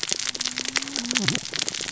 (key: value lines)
label: biophony, cascading saw
recorder: SoundTrap 600 or HydroMoth